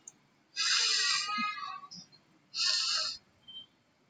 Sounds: Sniff